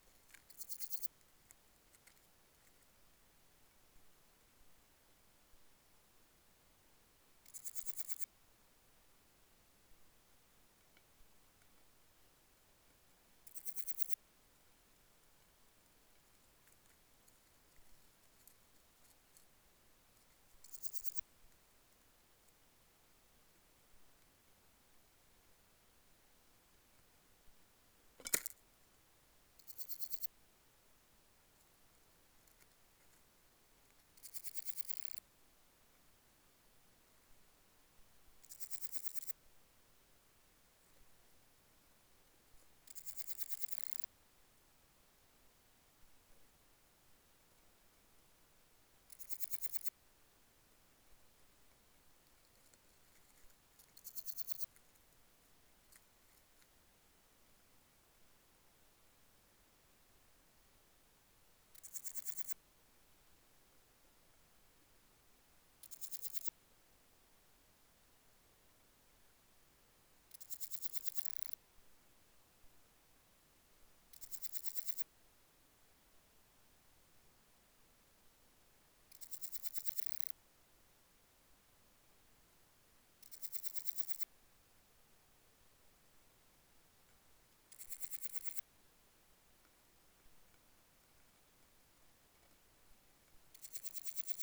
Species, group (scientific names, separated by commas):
Parnassiana coracis, Orthoptera